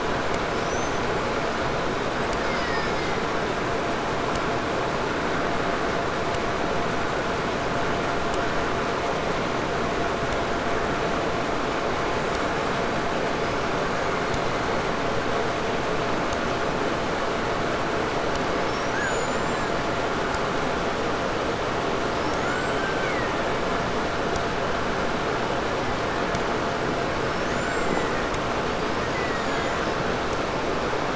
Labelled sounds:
0.4	1.2	killer whale, 4.6 to 6.4 kHz
2.0	3.8	killer whale, Bigg's (transient), 0.91 to 8.0 kHz
13.3	13.8	killer whale, 4.6 to 5.9 kHz
18.3	20.1	killer whale, 0.82 to 7.5 kHz
21.8	24.1	killer whale, 0.98 to 8.0 kHz
25.4	26.6	killer whale, 1.4 to 3.0 kHz
27.2	28.4	killer whale, 0.52 to 8.0 kHz
28.6	30.2	killer whale, Bigg's (transient), 0.90 to 7.5 kHz

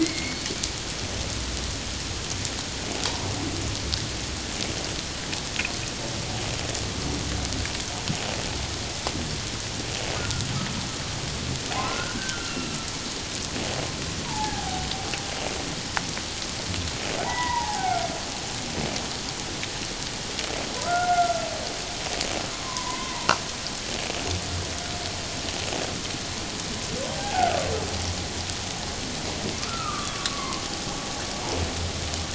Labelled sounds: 0.0	0.4	humpback whale, 2.0 to 2.3 kHz
10.2	10.5	humpback whale, 1.3 to 1.5 kHz
11.8	12.8	humpback whale, 1.2 to 2.9 kHz
14.2	14.9	humpback whale, 0.78 to 1.1 kHz
17.2	18.1	humpback whale, 0.78 to 2.0 kHz
20.8	21.5	humpback whale, 1.2 to 1.6 kHz
22.5	23.3	humpback whale, 0.81 to 1.2 kHz
27.2	27.7	humpback whale, 0.78 to 1.6 kHz
29.6	30.6	humpback whale, 0.88 to 1.5 kHz

